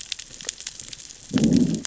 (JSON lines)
{"label": "biophony, growl", "recorder": "SoundTrap 600 or HydroMoth"}